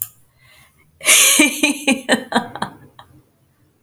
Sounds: Laughter